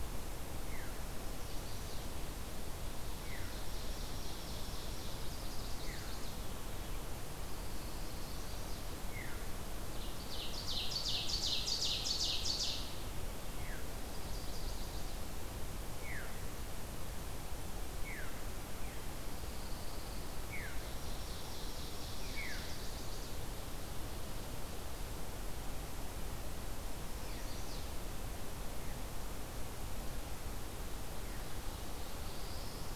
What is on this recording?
Veery, Chestnut-sided Warbler, Ovenbird, Pine Warbler, Black-throated Blue Warbler